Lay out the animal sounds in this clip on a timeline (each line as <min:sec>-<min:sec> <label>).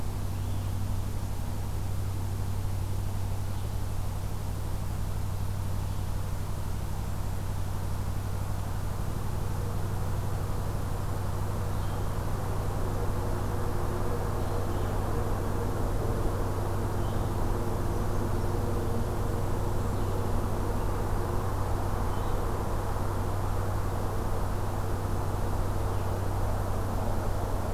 0:00.0-0:22.5 Blue-headed Vireo (Vireo solitarius)